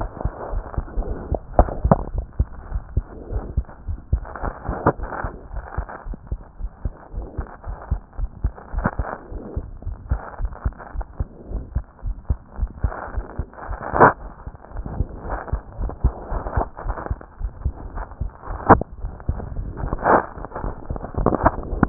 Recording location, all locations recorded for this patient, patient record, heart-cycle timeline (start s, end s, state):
pulmonary valve (PV)
aortic valve (AV)+pulmonary valve (PV)+tricuspid valve (TV)+mitral valve (MV)
#Age: Child
#Sex: Male
#Height: 123.0 cm
#Weight: 23.9 kg
#Pregnancy status: False
#Murmur: Absent
#Murmur locations: nan
#Most audible location: nan
#Systolic murmur timing: nan
#Systolic murmur shape: nan
#Systolic murmur grading: nan
#Systolic murmur pitch: nan
#Systolic murmur quality: nan
#Diastolic murmur timing: nan
#Diastolic murmur shape: nan
#Diastolic murmur grading: nan
#Diastolic murmur pitch: nan
#Diastolic murmur quality: nan
#Outcome: Abnormal
#Campaign: 2015 screening campaign
0.00	2.70	unannotated
2.70	2.84	S1
2.84	2.92	systole
2.92	3.06	S2
3.06	3.30	diastole
3.30	3.44	S1
3.44	3.54	systole
3.54	3.66	S2
3.66	3.86	diastole
3.86	3.98	S1
3.98	4.12	systole
4.12	4.26	S2
4.26	4.42	diastole
4.42	4.54	S1
4.54	4.66	systole
4.66	4.78	S2
4.78	4.98	diastole
4.98	5.10	S1
5.10	5.24	systole
5.24	5.32	S2
5.32	5.52	diastole
5.52	5.62	S1
5.62	5.74	systole
5.74	5.86	S2
5.86	6.06	diastole
6.06	6.18	S1
6.18	6.30	systole
6.30	6.40	S2
6.40	6.60	diastole
6.60	6.70	S1
6.70	6.84	systole
6.84	6.94	S2
6.94	7.16	diastole
7.16	7.28	S1
7.28	7.38	systole
7.38	7.48	S2
7.48	7.68	diastole
7.68	7.76	S1
7.76	7.90	systole
7.90	8.00	S2
8.00	8.18	diastole
8.18	8.30	S1
8.30	8.42	systole
8.42	8.54	S2
8.54	8.74	diastole
8.74	8.90	S1
8.90	8.98	systole
8.98	9.08	S2
9.08	9.32	diastole
9.32	9.40	S1
9.40	9.54	systole
9.54	9.66	S2
9.66	9.86	diastole
9.86	9.98	S1
9.98	10.10	systole
10.10	10.22	S2
10.22	10.40	diastole
10.40	10.52	S1
10.52	10.62	systole
10.62	10.76	S2
10.76	10.94	diastole
10.94	11.04	S1
11.04	11.16	systole
11.16	11.30	S2
11.30	11.50	diastole
11.50	11.64	S1
11.64	11.72	systole
11.72	11.86	S2
11.86	12.06	diastole
12.06	12.16	S1
12.16	12.26	systole
12.26	12.40	S2
12.40	12.58	diastole
12.58	12.70	S1
12.70	12.80	systole
12.80	12.94	S2
12.94	13.12	diastole
13.12	13.24	S1
13.24	13.36	systole
13.36	13.46	S2
13.46	13.63	diastole
13.63	21.89	unannotated